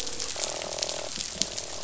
{"label": "biophony, croak", "recorder": "SoundTrap 500"}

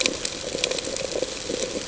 {"label": "ambient", "recorder": "HydroMoth"}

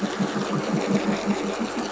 {"label": "anthrophony, boat engine", "recorder": "SoundTrap 500"}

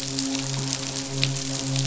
{"label": "biophony, midshipman", "recorder": "SoundTrap 500"}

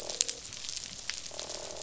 {"label": "biophony, croak", "recorder": "SoundTrap 500"}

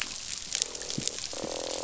{"label": "biophony, croak", "recorder": "SoundTrap 500"}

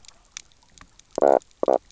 {"label": "biophony, knock croak", "recorder": "SoundTrap 300"}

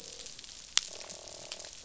{"label": "biophony, croak", "recorder": "SoundTrap 500"}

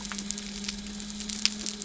{"label": "anthrophony, boat engine", "recorder": "SoundTrap 300"}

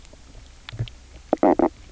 {"label": "biophony, knock croak", "recorder": "SoundTrap 300"}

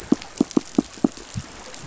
{"label": "biophony, pulse", "recorder": "SoundTrap 500"}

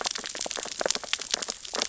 {"label": "biophony, sea urchins (Echinidae)", "recorder": "SoundTrap 600 or HydroMoth"}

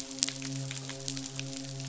{"label": "biophony, midshipman", "recorder": "SoundTrap 500"}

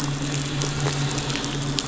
{"label": "anthrophony, boat engine", "recorder": "SoundTrap 500"}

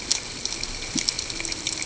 {"label": "ambient", "recorder": "HydroMoth"}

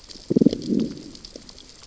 {"label": "biophony, growl", "recorder": "SoundTrap 600 or HydroMoth"}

